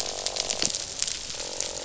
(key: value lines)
label: biophony, croak
recorder: SoundTrap 500